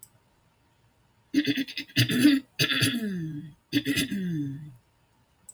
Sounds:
Throat clearing